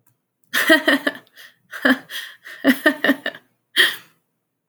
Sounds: Laughter